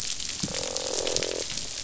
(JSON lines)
{"label": "biophony, croak", "recorder": "SoundTrap 500"}